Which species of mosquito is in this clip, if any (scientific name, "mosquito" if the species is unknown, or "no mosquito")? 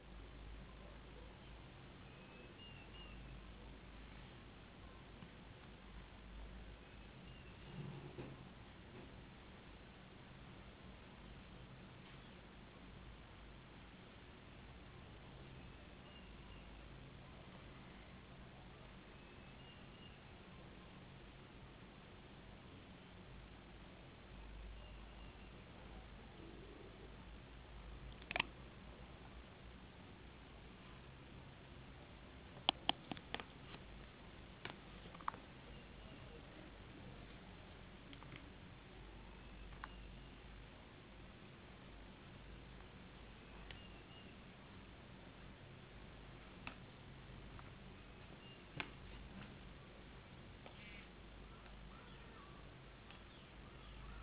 no mosquito